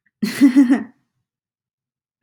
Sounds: Laughter